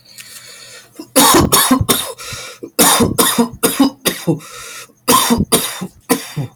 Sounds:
Cough